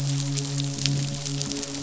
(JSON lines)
{"label": "biophony, midshipman", "recorder": "SoundTrap 500"}